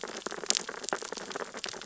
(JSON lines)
{"label": "biophony, sea urchins (Echinidae)", "recorder": "SoundTrap 600 or HydroMoth"}